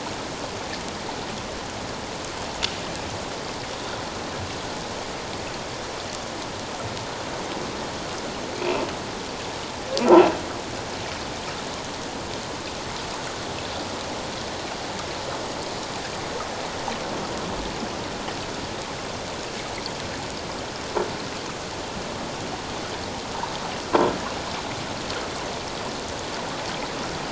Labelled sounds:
8.5	8.8	croaking sound likely from a nearby submerged object, 2.2 to 2.8 kHz

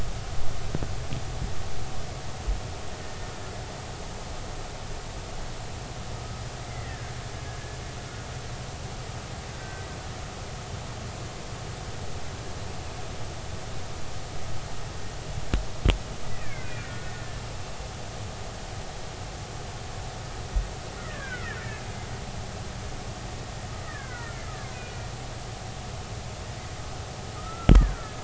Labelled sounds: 6.7	7.1	killer whale, Bigg's (transient), 1.5 to 2.1 kHz
9.5	9.8	killer whale, Bigg's (transient), 1.5 to 1.6 kHz
16.3	17.4	killer whale, Bigg's (transient), 1.4 to 2.6 kHz
21.0	21.9	killer whale, Bigg's (transient), 1.2 to 2.4 kHz
23.8	25.1	killer whale, Bigg's (transient), 0.96 to 2.6 kHz
27.4	28.1	killer whale, Bigg's (transient), 1.2 to 2.0 kHz

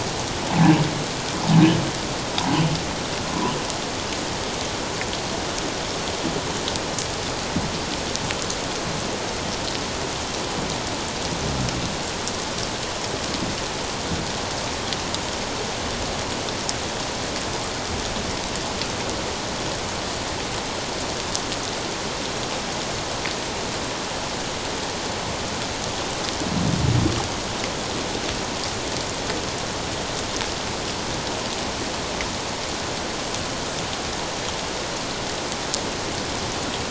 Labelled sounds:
0.5	0.8	humpback whale, 0.78 to 1.0 kHz
3.3	3.5	humpback whale, 0.94 to 1.1 kHz

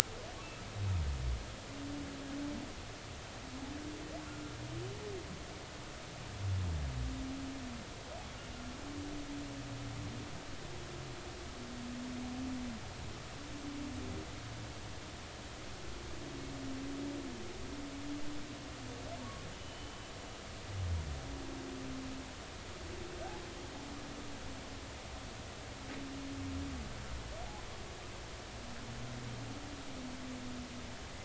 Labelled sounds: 4.3	4.5	humpback whale, 1.3 to 1.4 kHz
19.5	20.0	humpback whale, 2.9 to 3.1 kHz

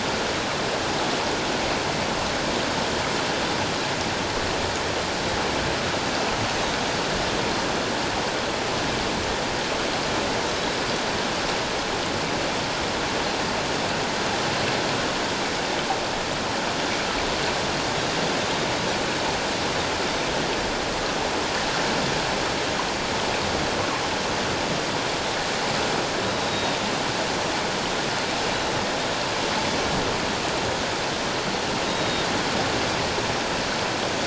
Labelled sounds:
26.5	26.8	Pacific white-sided dolphin, 3.6 to 3.8 kHz
31.9	32.3	Pacific white-sided dolphin, 3.6 to 3.9 kHz

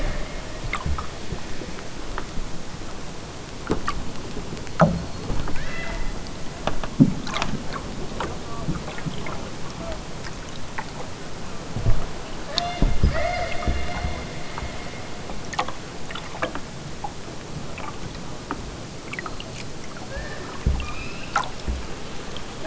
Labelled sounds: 5.5	6.3	killer whale, southern Alaska resident, 1.1 to 5.1 kHz
12.5	13.9	killer whale, southern Alaska resident, 0.41 to 6.2 kHz
20.1	21.3	killer whale, southern Alaska resident, 1.1 to 6.7 kHz

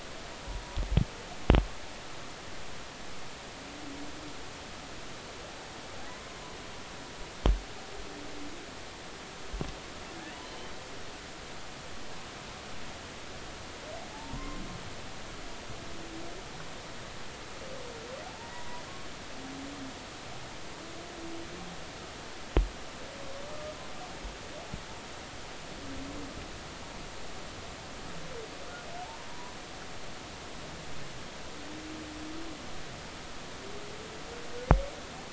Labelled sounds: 10.4	10.7	humpback whale, 2.9 to 3.2 kHz
14.1	14.6	humpback whale, 0.80 to 1.1 kHz
18.3	18.8	humpback whale, 0.80 to 1.0 kHz
29.0	29.5	humpback whale, 0.80 to 1.1 kHz

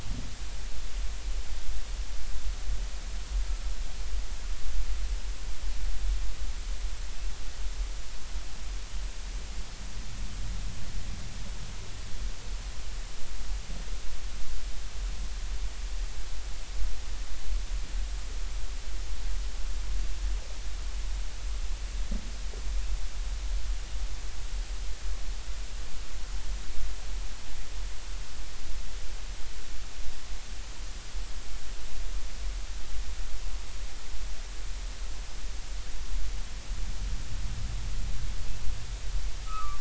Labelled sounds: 39.4	39.7	humpback whale, 1.1 to 1.3 kHz

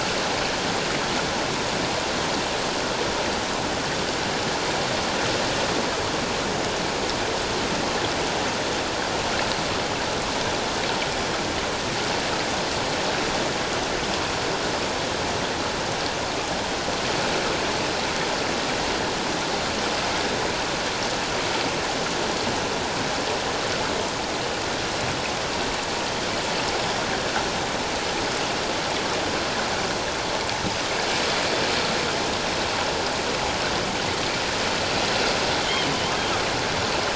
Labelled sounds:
35.6	35.9	killer whale, 3.0 to 3.3 kHz

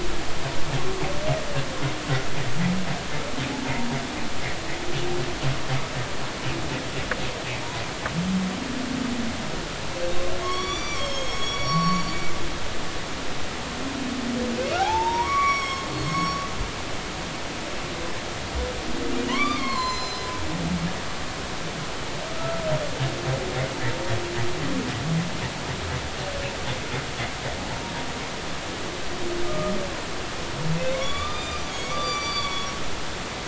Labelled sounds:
10.4	12.7	humpback whale, 0.99 to 7.0 kHz
14.6	16.5	humpback whale, 0.80 to 7.9 kHz
19.3	20.3	humpback whale, 0.93 to 7.3 kHz
22.3	22.6	humpback whale, 1.2 to 1.4 kHz
29.4	29.7	humpback whale, 1.1 to 1.3 kHz
30.9	32.7	humpback whale, 1.0 to 7.0 kHz

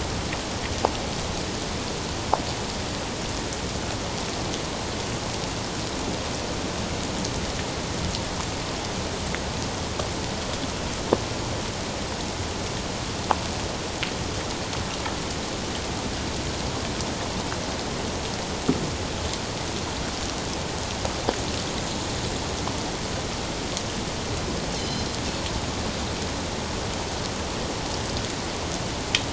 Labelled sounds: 24.7	25.1	Pacific white-sided dolphin, 3.0 to 4.4 kHz

